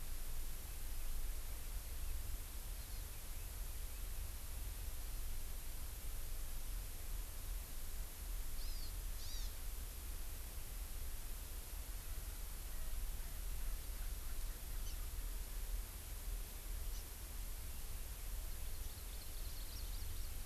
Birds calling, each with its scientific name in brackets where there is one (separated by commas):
Hawaii Amakihi (Chlorodrepanis virens), House Finch (Haemorhous mexicanus)